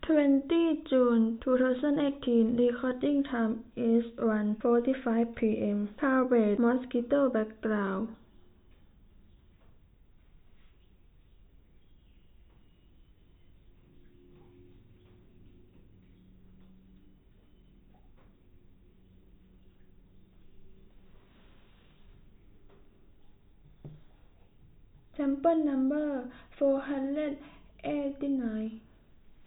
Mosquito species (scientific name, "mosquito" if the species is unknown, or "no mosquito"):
no mosquito